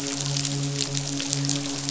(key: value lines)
label: biophony, midshipman
recorder: SoundTrap 500